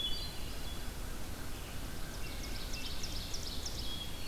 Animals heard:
Ovenbird (Seiurus aurocapilla), Red-eyed Vireo (Vireo olivaceus), Hermit Thrush (Catharus guttatus), American Crow (Corvus brachyrhynchos)

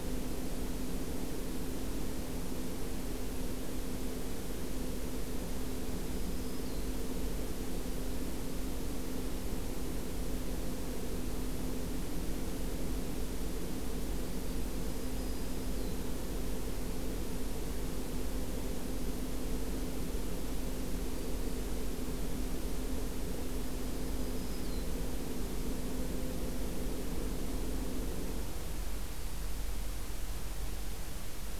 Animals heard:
Black-throated Green Warbler (Setophaga virens)

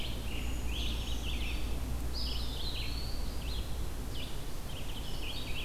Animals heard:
Red-eyed Vireo (Vireo olivaceus), Brown Creeper (Certhia americana), Eastern Wood-Pewee (Contopus virens), Scarlet Tanager (Piranga olivacea)

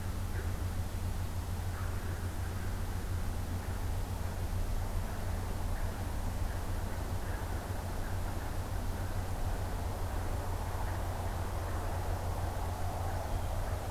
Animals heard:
Blue Jay (Cyanocitta cristata)

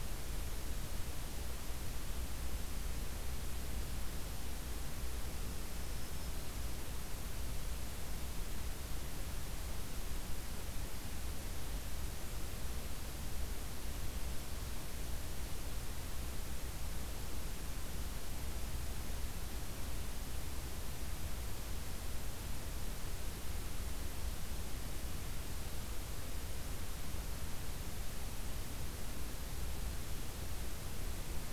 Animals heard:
Black-throated Green Warbler (Setophaga virens)

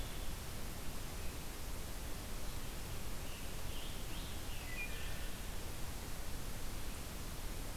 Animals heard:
Wood Thrush (Hylocichla mustelina), Scarlet Tanager (Piranga olivacea)

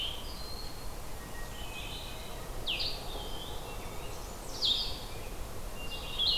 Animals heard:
Blackburnian Warbler (Setophaga fusca), Eastern Wood-Pewee (Contopus virens), Blue-headed Vireo (Vireo solitarius), Hermit Thrush (Catharus guttatus)

